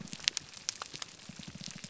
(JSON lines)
{"label": "biophony, grouper groan", "recorder": "SoundTrap 300"}